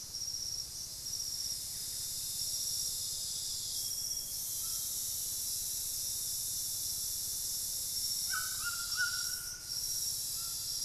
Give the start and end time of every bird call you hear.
[0.00, 10.84] White-throated Toucan (Ramphastos tucanus)
[0.37, 3.47] unidentified bird
[2.67, 5.37] Amazonian Grosbeak (Cyanoloxia rothschildii)
[7.97, 10.84] Cinnamon-rumped Foliage-gleaner (Philydor pyrrhodes)

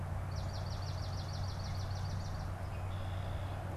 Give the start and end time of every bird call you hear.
[0.19, 2.49] Swamp Sparrow (Melospiza georgiana)
[2.59, 3.69] Red-winged Blackbird (Agelaius phoeniceus)

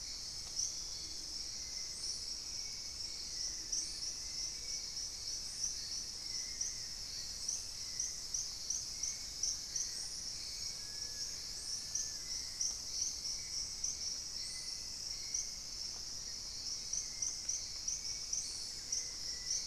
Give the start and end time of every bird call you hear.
[0.00, 19.67] Hauxwell's Thrush (Turdus hauxwelli)
[9.21, 12.52] Long-billed Woodcreeper (Nasica longirostris)
[18.52, 19.11] unidentified bird
[18.61, 19.32] Gray-fronted Dove (Leptotila rufaxilla)

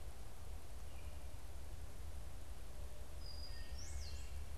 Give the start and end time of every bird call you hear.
[3.09, 4.49] Brown-headed Cowbird (Molothrus ater)
[3.39, 4.09] Wood Thrush (Hylocichla mustelina)

